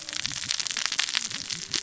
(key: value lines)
label: biophony, cascading saw
recorder: SoundTrap 600 or HydroMoth